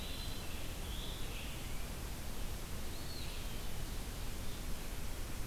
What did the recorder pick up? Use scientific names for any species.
Contopus virens, Piranga olivacea